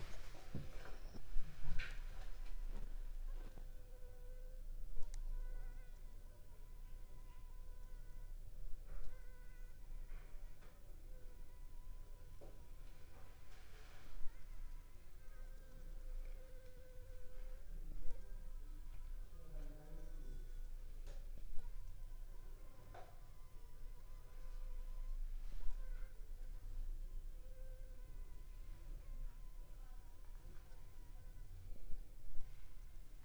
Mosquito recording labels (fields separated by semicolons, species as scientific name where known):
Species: Anopheles funestus s.s.; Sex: female; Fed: unfed; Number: one; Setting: cup